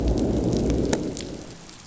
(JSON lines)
{"label": "biophony, growl", "recorder": "SoundTrap 500"}